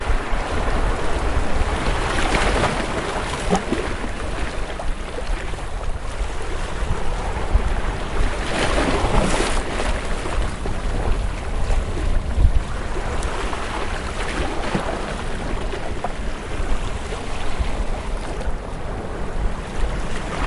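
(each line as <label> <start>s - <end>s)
Surf and waves are heard. 0.0s - 20.5s
An object falls into the water. 3.3s - 4.1s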